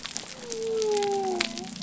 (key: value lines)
label: biophony
recorder: SoundTrap 300